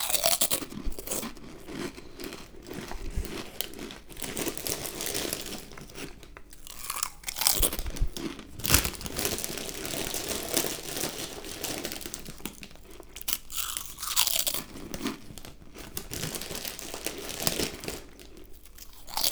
What is the person eating?
chips